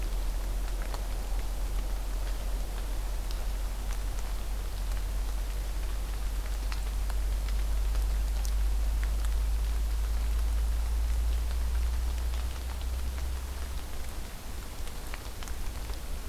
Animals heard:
forest ambience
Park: Acadia National Park